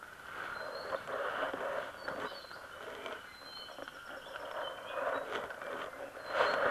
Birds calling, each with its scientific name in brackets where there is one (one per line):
Apapane (Himatione sanguinea)